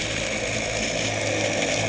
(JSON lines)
{"label": "anthrophony, boat engine", "recorder": "HydroMoth"}